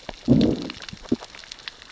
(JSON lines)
{"label": "biophony, growl", "recorder": "SoundTrap 600 or HydroMoth"}